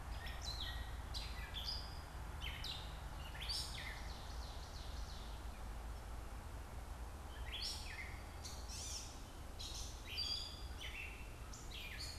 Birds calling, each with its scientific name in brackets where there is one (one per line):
Gray Catbird (Dumetella carolinensis)
Ovenbird (Seiurus aurocapilla)